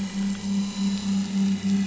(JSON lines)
{"label": "anthrophony, boat engine", "recorder": "SoundTrap 500"}